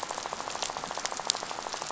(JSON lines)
{"label": "biophony, rattle", "recorder": "SoundTrap 500"}